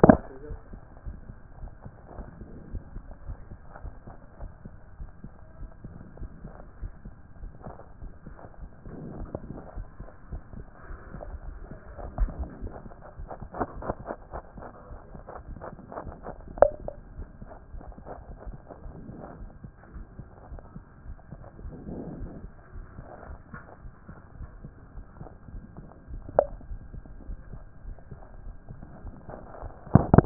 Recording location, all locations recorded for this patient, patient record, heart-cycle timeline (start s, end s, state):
aortic valve (AV)
aortic valve (AV)+pulmonary valve (PV)+tricuspid valve (TV)+mitral valve (MV)
#Age: Child
#Sex: Male
#Height: 158.0 cm
#Weight: 56.0 kg
#Pregnancy status: False
#Murmur: Absent
#Murmur locations: nan
#Most audible location: nan
#Systolic murmur timing: nan
#Systolic murmur shape: nan
#Systolic murmur grading: nan
#Systolic murmur pitch: nan
#Systolic murmur quality: nan
#Diastolic murmur timing: nan
#Diastolic murmur shape: nan
#Diastolic murmur grading: nan
#Diastolic murmur pitch: nan
#Diastolic murmur quality: nan
#Outcome: Abnormal
#Campaign: 2014 screening campaign
0.00	0.48	unannotated
0.48	0.58	S1
0.58	0.72	systole
0.72	0.80	S2
0.80	1.06	diastole
1.06	1.18	S1
1.18	1.28	systole
1.28	1.38	S2
1.38	1.60	diastole
1.60	1.72	S1
1.72	1.84	systole
1.84	1.94	S2
1.94	2.16	diastole
2.16	2.28	S1
2.28	2.40	systole
2.40	2.48	S2
2.48	2.72	diastole
2.72	2.82	S1
2.82	2.94	systole
2.94	3.04	S2
3.04	3.26	diastole
3.26	3.38	S1
3.38	3.50	systole
3.50	3.60	S2
3.60	3.82	diastole
3.82	3.94	S1
3.94	4.08	systole
4.08	4.16	S2
4.16	4.40	diastole
4.40	4.52	S1
4.52	4.66	systole
4.66	4.76	S2
4.76	4.98	diastole
4.98	5.10	S1
5.10	5.24	systole
5.24	5.34	S2
5.34	5.60	diastole
5.60	5.70	S1
5.70	5.84	systole
5.84	5.94	S2
5.94	6.20	diastole
6.20	6.30	S1
6.30	6.44	systole
6.44	6.54	S2
6.54	6.80	diastole
6.80	6.92	S1
6.92	7.04	systole
7.04	7.14	S2
7.14	7.40	diastole
7.40	7.52	S1
7.52	7.66	systole
7.66	7.76	S2
7.76	8.00	diastole
8.00	8.12	S1
8.12	8.26	systole
8.26	8.38	S2
8.38	8.60	diastole
8.60	30.26	unannotated